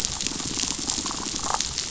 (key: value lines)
label: biophony, damselfish
recorder: SoundTrap 500